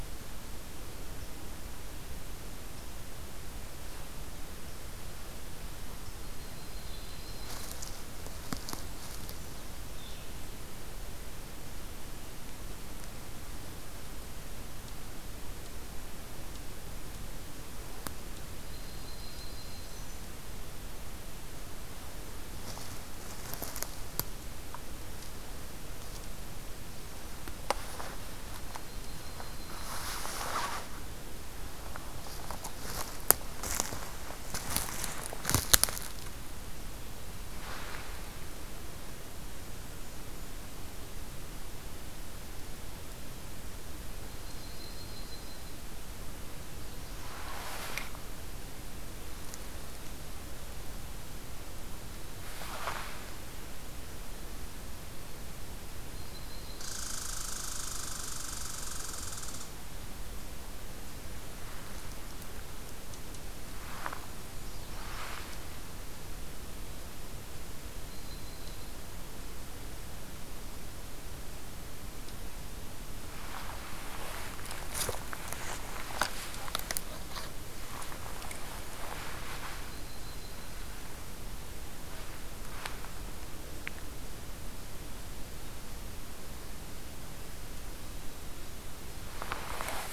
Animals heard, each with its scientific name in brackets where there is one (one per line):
Red Squirrel (Tamiasciurus hudsonicus)
Yellow-rumped Warbler (Setophaga coronata)